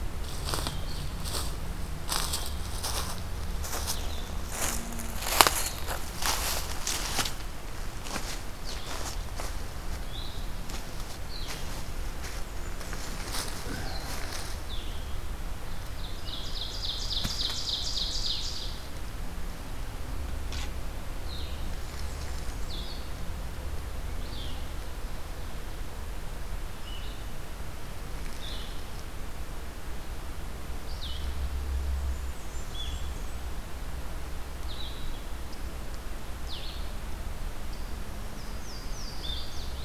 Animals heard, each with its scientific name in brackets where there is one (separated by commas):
Blue-headed Vireo (Vireo solitarius), Blackburnian Warbler (Setophaga fusca), Louisiana Waterthrush (Parkesia motacilla), Ovenbird (Seiurus aurocapilla)